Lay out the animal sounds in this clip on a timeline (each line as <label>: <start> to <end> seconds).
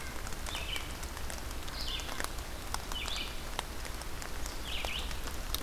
Red-eyed Vireo (Vireo olivaceus): 0.0 to 5.6 seconds